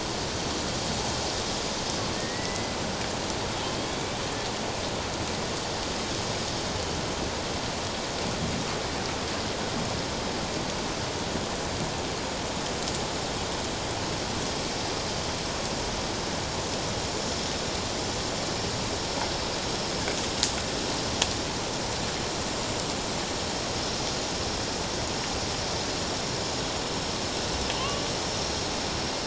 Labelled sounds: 2.1	2.7	killer whale, Bigg's (transient), 1.8 to 2.1 kHz
3.6	4.2	killer whale, Bigg's (transient), 3.0 to 3.6 kHz
27.8	28.1	killer whale, Bigg's (transient), 2.6 to 2.9 kHz

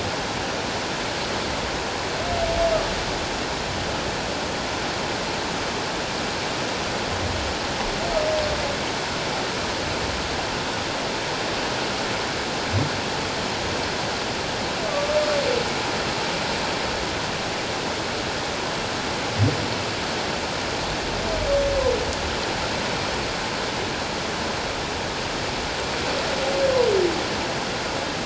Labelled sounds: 14.9	15.2	humpback whale, 1.1 to 1.2 kHz

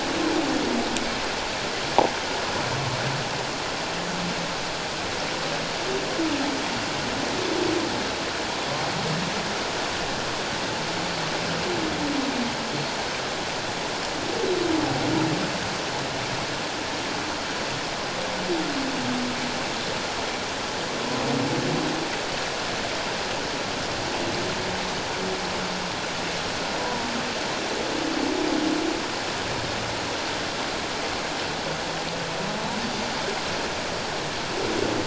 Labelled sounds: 26.8	27.0	humpback whale, 0.91 to 1.0 kHz

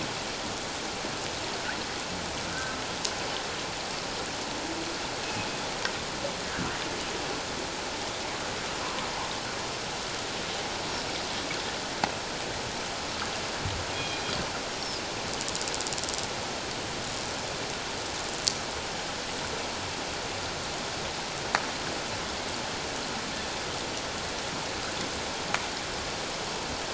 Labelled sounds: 6.4	6.7	killer whale, northern resident, G clan, 1.3 to 1.7 kHz
13.9	15.0	killer whale, northern resident, G clan, 2.4 to 5.6 kHz

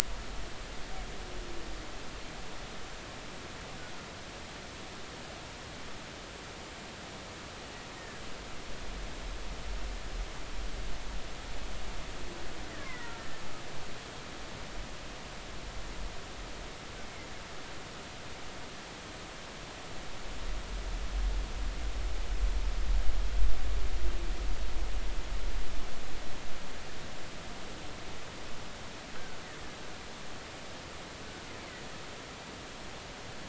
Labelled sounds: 8.0	8.2	killer whale, Bigg's (transient), 1.6 to 1.9 kHz
12.8	13.4	killer whale, Bigg's (transient), 1.3 to 2.3 kHz

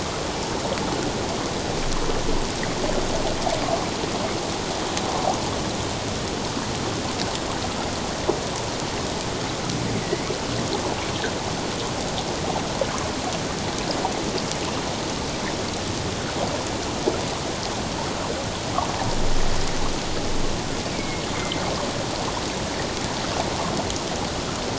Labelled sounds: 10.0	10.4	killer whale, northern resident, A clan, 1.9 to 2.4 kHz
20.9	21.6	killer whale, northern resident, A clan, AA subclan, 2.0 to 2.3 kHz

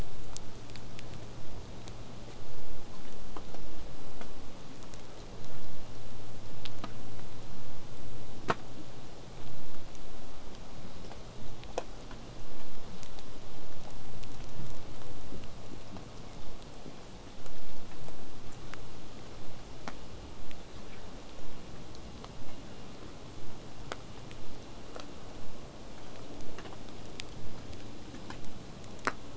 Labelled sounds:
24.4	29.3	vessel noise, 0 to 8.0 kHz

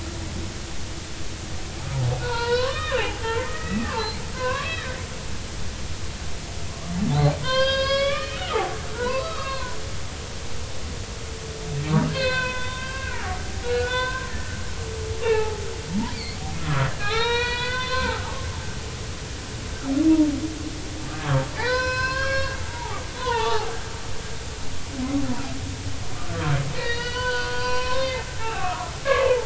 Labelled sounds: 2.2	4.9	humpback whale, 0.80 to 5.6 kHz
6.7	9.8	humpback whale, 0.80 to 5.7 kHz
12.1	14.6	humpback whale, 0.93 to 4.5 kHz
15.2	15.6	humpback whale, 0.80 to 2.8 kHz
15.9	18.2	humpback whale, 0.80 to 5.9 kHz
21.5	23.7	humpback whale, 0.80 to 5.5 kHz
26.8	29.4	humpback whale, 0.80 to 4.9 kHz

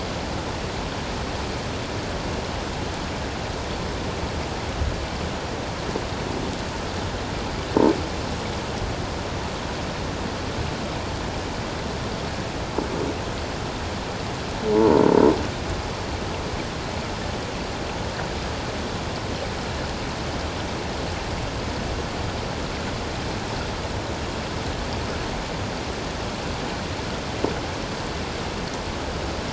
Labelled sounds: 14.7	15.0	croaking sound likely from a nearby submerged object, 0.84 to 1.1 kHz

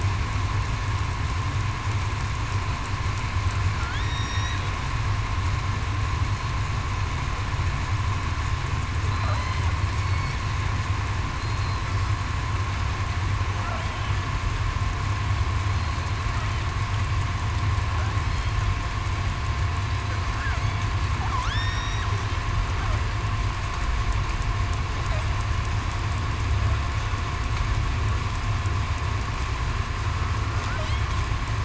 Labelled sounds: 4.0	4.6	killer whale, southern resident, 3.5 to 5.9 kHz
9.1	9.5	killer whale, southern resident, 3.9 to 4.1 kHz
21.5	22.1	killer whale, southern resident, 1.6 to 5.7 kHz

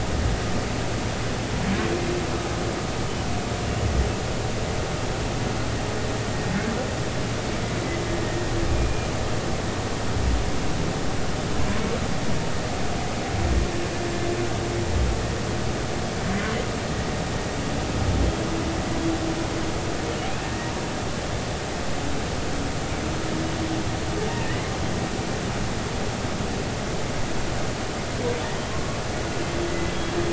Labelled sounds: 8.7	9.1	humpback whale, 2.4 to 2.5 kHz
20.4	20.7	humpback whale, 1.8 to 2.0 kHz
24.5	24.7	humpback whale, 1.8 to 2.2 kHz
28.7	29.0	humpback whale, 1.0 to 1.2 kHz
29.7	29.9	humpback whale, 1.95 to 2.05 kHz

